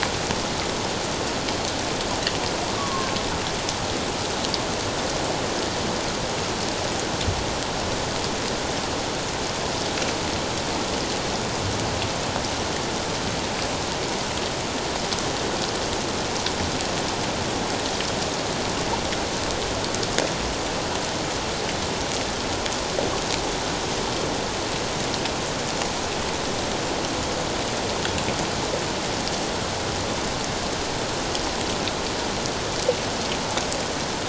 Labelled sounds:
2.8	3.1	humpback whale, 0.97 to 1.2 kHz

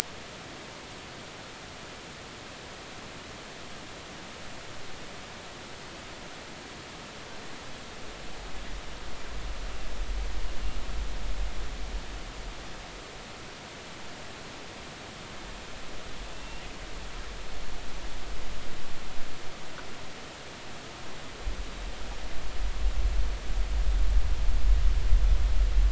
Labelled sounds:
16.3	16.6	killer whale, northern resident, G clan, 2.6 to 2.8 kHz

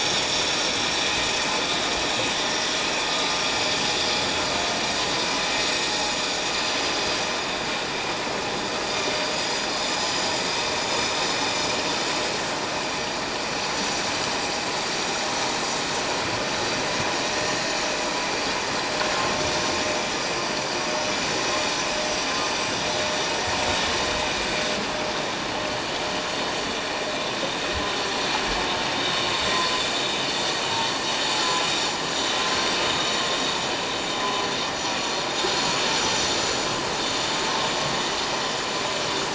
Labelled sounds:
1.0	1.3	vessel noise, 7.1 to 7.2 kHz
3.4	3.7	vessel noise, 4.8 to 4.9 kHz

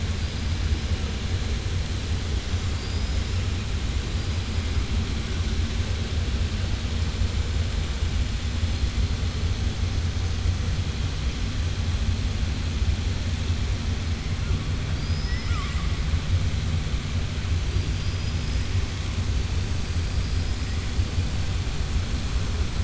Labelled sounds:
2.7	3.2	killer whale, southern resident, 4.5 to 5.2 kHz
14.9	15.9	killer whale, southern resident, 0.98 to 5.9 kHz
17.7	18.6	killer whale, southern resident, 4.7 to 5.8 kHz

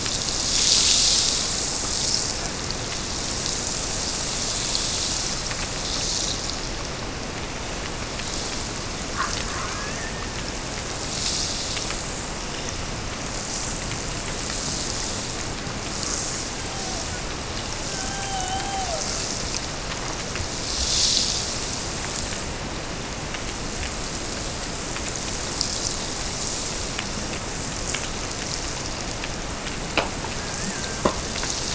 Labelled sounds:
30.3	31.2	killer whale, Bigg's (transient), Gulf of Alaska transient, 1.4 to 1.9 kHz

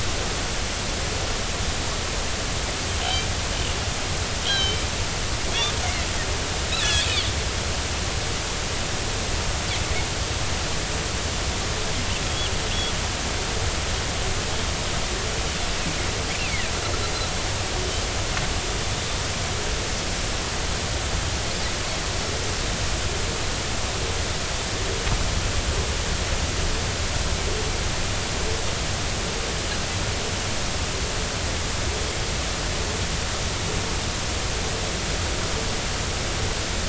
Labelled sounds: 3.0	3.3	Pacific white-sided dolphin, 3.0 to 3.2 kHz
4.4	4.8	Pacific white-sided dolphin, 2.2 to 6.5 kHz
6.7	7.1	Pacific white-sided dolphin, 1.6 to 4.1 kHz
16.4	16.7	Pacific white-sided dolphin, 1.8 to 2.9 kHz

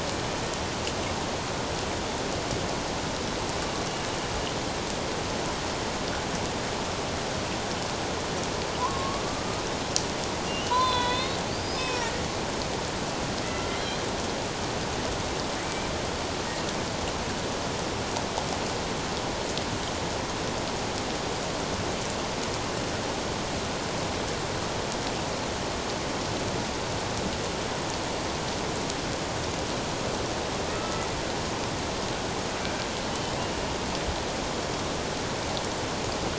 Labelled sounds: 8.8	9.6	killer whale, Bigg's (transient), 0.94 to 1.3 kHz
10.5	12.1	killer whale, Bigg's (transient), 0.91 to 6.0 kHz
13.8	14.0	killer whale, Bigg's (transient), 3.9 to 4.2 kHz
15.6	15.9	killer whale, Bigg's (transient), 2.2 to 2.5 kHz
30.8	31.1	killer whale, Bigg's (transient), 1.2 to 1.3 kHz
33.3	33.6	killer whale, Bigg's (transient), 2.6 to 3.0 kHz

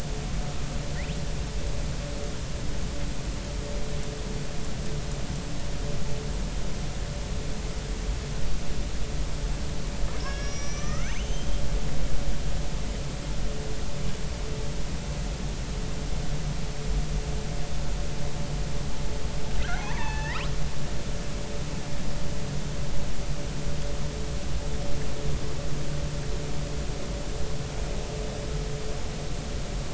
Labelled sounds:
10.2	11.5	killer whale, northern resident, R clan, call N32ii, 1.1 to 6.3 kHz
19.7	20.4	killer whale, northern resident, R clan, call N33, 0.80 to 6.2 kHz

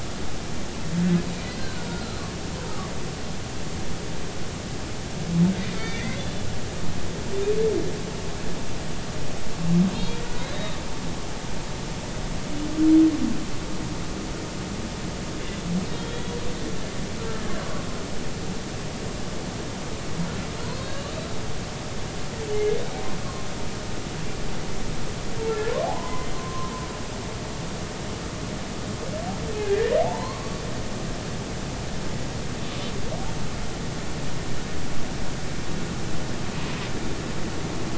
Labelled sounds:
1.4	2.2	humpback whale, 1.2 to 4.3 kHz
5.8	7.2	humpback whale, 1.7 to 2.5 kHz
9.9	10.2	humpback whale, 3.2 to 4.3 kHz
10.5	10.8	humpback whale, 3.5 to 3.9 kHz
16.0	16.3	humpback whale, 3.2 to 3.4 kHz
20.7	21.1	humpback whale, 3.6 to 4.6 kHz
22.5	23.5	humpback whale, 1.0 to 2.2 kHz
25.5	26.7	humpback whale, 0.80 to 2.1 kHz
29.6	30.6	humpback whale, 0.80 to 2.0 kHz

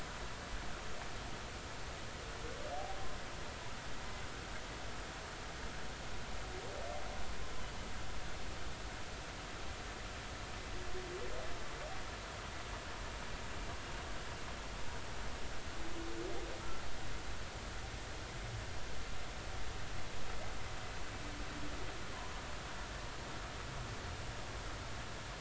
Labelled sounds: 16.6	16.8	humpback whale, 1.2 to 1.4 kHz

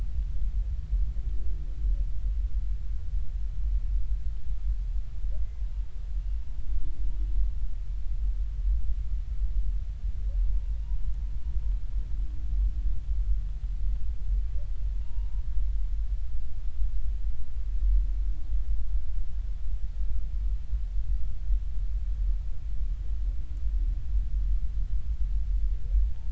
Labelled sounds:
15.0	15.4	humpback whale, 0.90 to 2.9 kHz

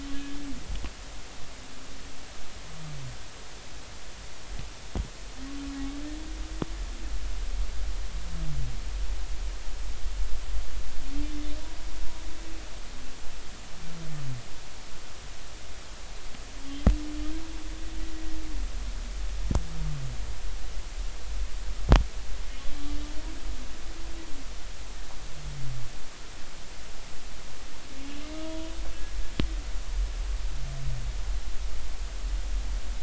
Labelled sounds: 28.4	28.7	humpback whale, 0.93 to 1.0 kHz

